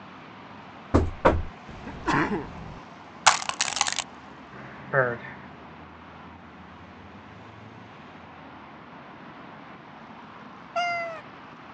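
An unchanging background noise lies beneath the sounds. At the start, knocking is heard. After that, about 2 seconds in, someone sneezes. About 3 seconds in, crushing is audible. Later, about 5 seconds in, a voice says "bird". About 11 seconds in, a cat meows.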